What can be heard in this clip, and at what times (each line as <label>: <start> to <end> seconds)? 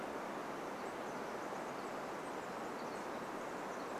Pacific Wren song: 0 to 4 seconds